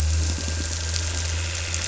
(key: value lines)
label: anthrophony, boat engine
recorder: SoundTrap 300

label: biophony
recorder: SoundTrap 300